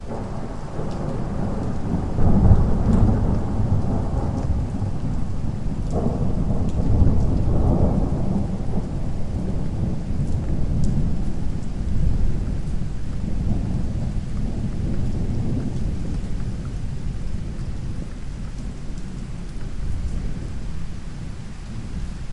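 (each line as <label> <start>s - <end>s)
Repeated muffled thunder sounds caused by a storm. 0.0s - 16.5s
Rain falling during a storm in an outdoor environment with background noise. 0.0s - 22.3s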